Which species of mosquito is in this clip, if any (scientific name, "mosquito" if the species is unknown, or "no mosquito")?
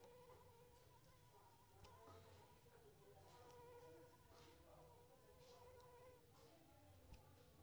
Anopheles arabiensis